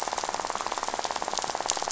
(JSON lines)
{"label": "biophony, rattle", "recorder": "SoundTrap 500"}